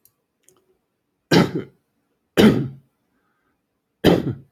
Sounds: Cough